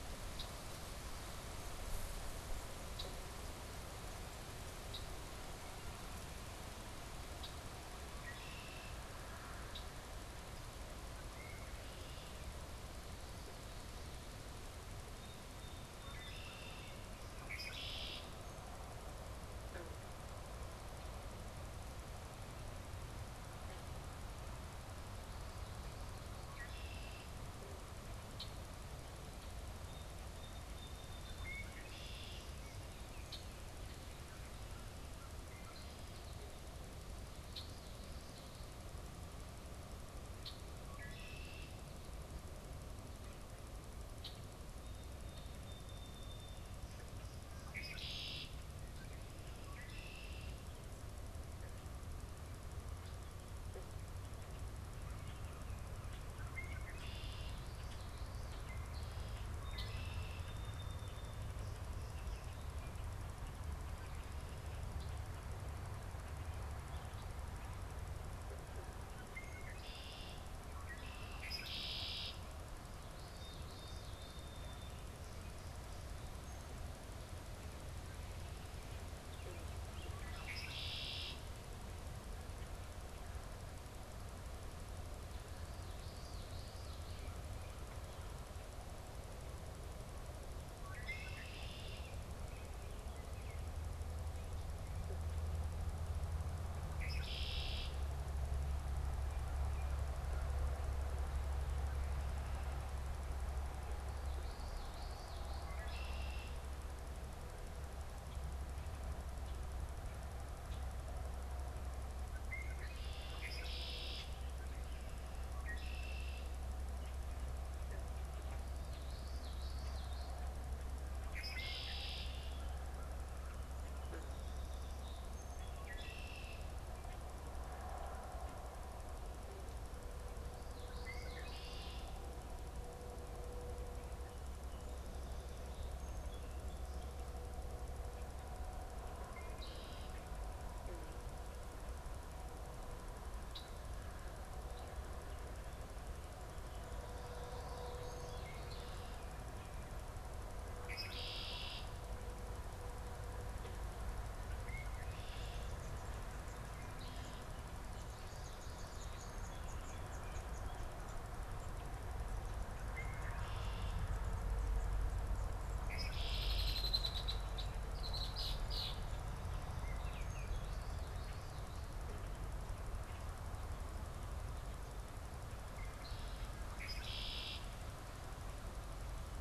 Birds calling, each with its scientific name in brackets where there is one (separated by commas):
American Robin (Turdus migratorius), Red-winged Blackbird (Agelaius phoeniceus), unidentified bird, Baltimore Oriole (Icterus galbula), Song Sparrow (Melospiza melodia), Common Yellowthroat (Geothlypis trichas)